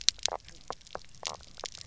{"label": "biophony, knock croak", "recorder": "SoundTrap 300"}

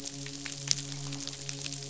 {"label": "biophony, midshipman", "recorder": "SoundTrap 500"}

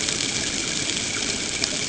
{"label": "ambient", "recorder": "HydroMoth"}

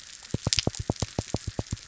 {"label": "biophony", "recorder": "SoundTrap 300"}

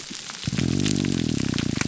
{"label": "biophony, grouper groan", "recorder": "SoundTrap 300"}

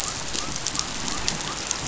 {"label": "biophony", "recorder": "SoundTrap 500"}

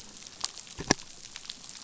{"label": "biophony", "recorder": "SoundTrap 500"}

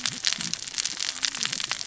{"label": "biophony, cascading saw", "recorder": "SoundTrap 600 or HydroMoth"}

